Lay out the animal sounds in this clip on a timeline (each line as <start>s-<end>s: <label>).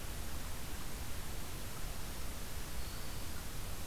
2.6s-3.5s: Black-throated Green Warbler (Setophaga virens)